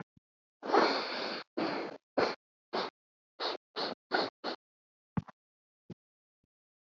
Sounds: Sniff